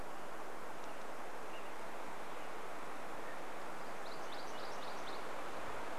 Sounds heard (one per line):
MacGillivray's Warbler song